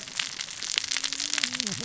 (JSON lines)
{"label": "biophony, cascading saw", "recorder": "SoundTrap 600 or HydroMoth"}